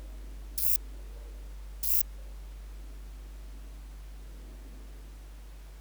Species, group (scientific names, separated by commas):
Rhacocleis germanica, Orthoptera